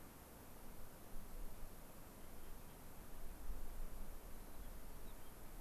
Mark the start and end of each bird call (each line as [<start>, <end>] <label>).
[4.38, 5.28] White-crowned Sparrow (Zonotrichia leucophrys)